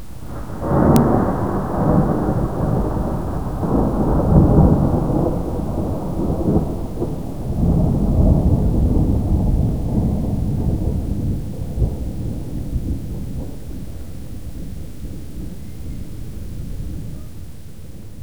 Is the noise a natural sound?
yes